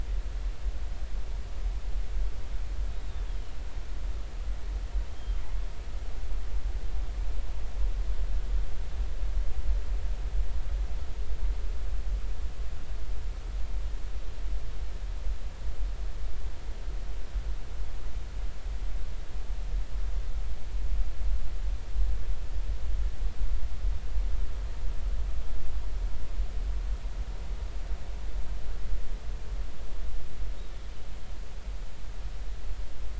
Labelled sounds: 3.1	3.4	killer whale, northern resident, G clan, 3.2 to 3.7 kHz
5.1	5.4	killer whale, northern resident, G clan, GG subclan, call N23ii, 3.1 to 3.3 kHz

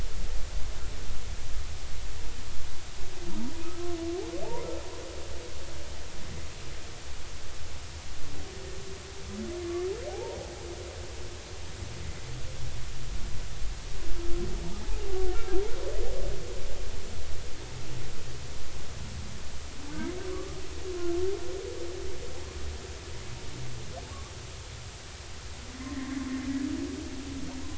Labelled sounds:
10.1	10.4	humpback whale, 0.80 to 0.99 kHz

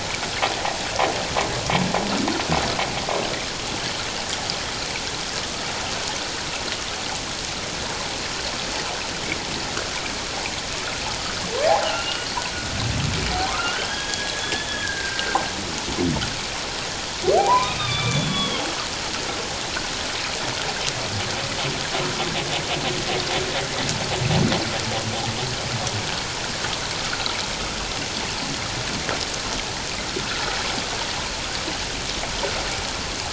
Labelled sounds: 11.8	12.3	humpback whale, 1.3 to 3.0 kHz
13.5	15.4	humpback whale, 0.91 to 3.5 kHz
17.4	18.6	humpback whale, 0.78 to 3.8 kHz
27.0	27.4	humpback whale, 1.2 to 1.5 kHz

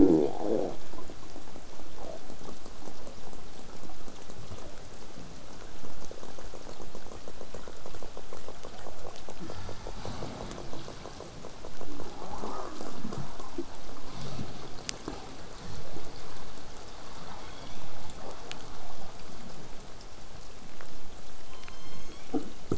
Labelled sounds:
21.5	22.7	killer whale, southern resident, call S01, 0.93 to 8.0 kHz

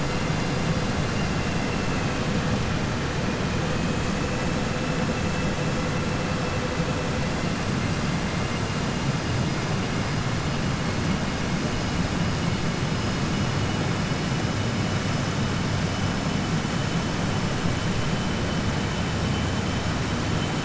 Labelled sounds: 12.9	13.5	vessel noise, 4.2 to 5.9 kHz

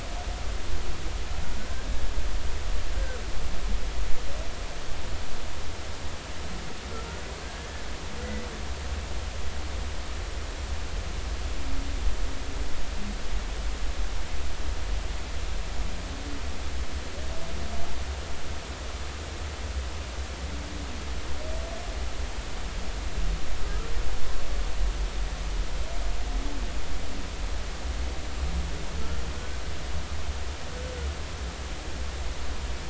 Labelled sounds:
2.9	3.2	humpback whale, 1.4 to 1.6 kHz
7.4	7.8	humpback whale, 1.5 to 1.8 kHz
23.6	23.9	humpback whale, 1.2 to 1.4 kHz

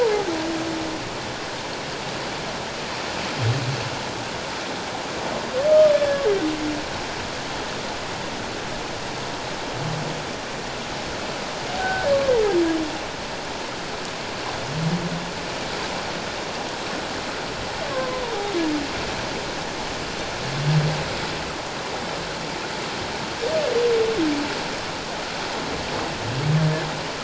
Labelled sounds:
0.0	0.3	humpback whale, 0.78 to 1.0 kHz
5.7	6.2	humpback whale, 1.2 to 1.8 kHz
11.8	12.1	humpback whale, 1.4 to 1.6 kHz
17.9	18.2	humpback whale, 0.97 to 1.1 kHz

